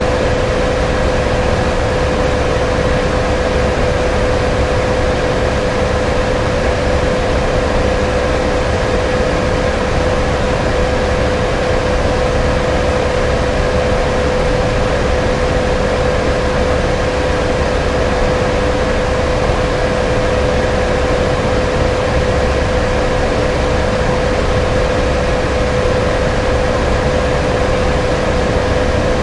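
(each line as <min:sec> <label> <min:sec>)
0:00.0 An air conditioner produces continuous, uniform noise. 0:29.2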